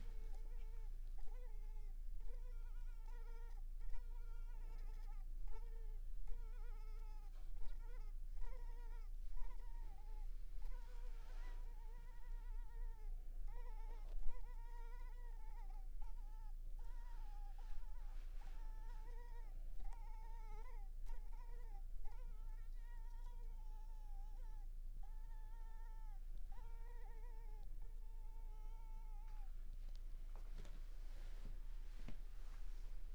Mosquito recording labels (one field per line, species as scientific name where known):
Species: Culex pipiens complex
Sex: female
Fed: unfed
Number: one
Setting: cup